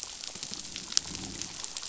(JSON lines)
{"label": "biophony", "recorder": "SoundTrap 500"}